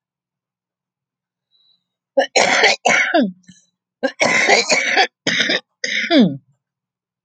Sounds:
Cough